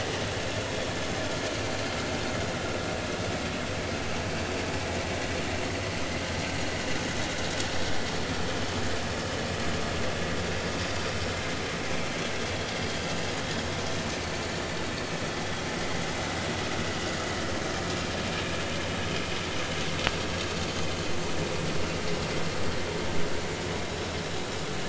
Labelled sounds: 14.2	14.5	vessel noise, 4.3 to 4.5 kHz

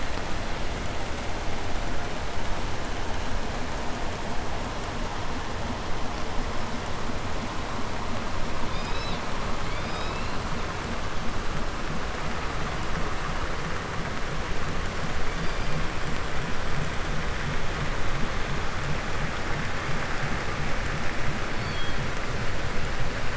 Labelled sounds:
8.6	9.2	killer whale, 1.7 to 5.9 kHz
9.6	10.5	killer whale, 1.9 to 5.5 kHz
15.1	15.9	killer whale, southern resident, call S16, 1.9 to 5.3 kHz
21.4	22.1	killer whale, 2.5 to 5.0 kHz

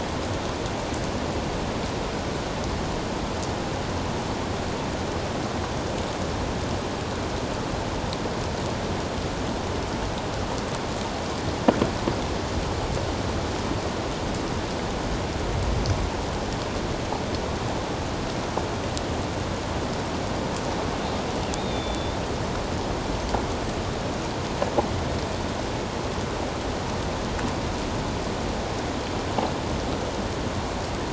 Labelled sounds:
21.6	22.2	killer whale, 3.4 to 3.8 kHz

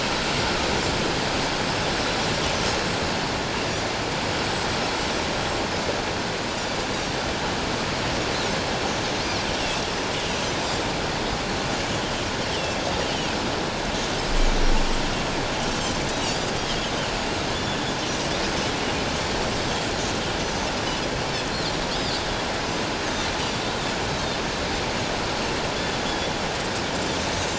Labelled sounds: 5.4	5.6	Pacific white-sided dolphin, 7.3 to 7.8 kHz
16.3	16.6	Pacific white-sided dolphin, 4.4 to 4.9 kHz
19.5	19.8	Pacific white-sided dolphin, 6.0 to 6.4 kHz
21.9	22.2	Pacific white-sided dolphin, 4.4 to 5.1 kHz
24.1	24.4	Pacific white-sided dolphin, 3.5 to 4.0 kHz
25.7	26.0	Pacific white-sided dolphin, 3.3 to 3.5 kHz

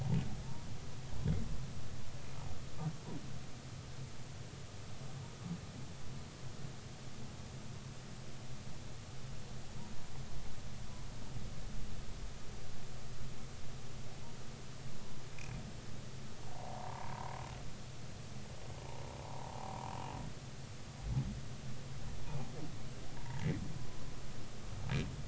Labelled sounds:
15.3	15.6	humpback whale, 2.3 to 2.7 kHz
16.5	17.3	humpback whale, 0.80 to 1.2 kHz
19.3	19.8	humpback whale, 0.80 to 1.0 kHz
23.3	23.6	humpback whale, 1.8 to 2.4 kHz

